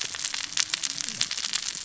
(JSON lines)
{"label": "biophony, cascading saw", "recorder": "SoundTrap 600 or HydroMoth"}